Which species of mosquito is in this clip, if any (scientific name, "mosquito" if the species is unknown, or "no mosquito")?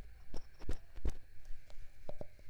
Culex tigripes